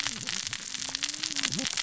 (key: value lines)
label: biophony, cascading saw
recorder: SoundTrap 600 or HydroMoth